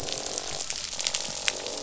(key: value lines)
label: biophony, croak
recorder: SoundTrap 500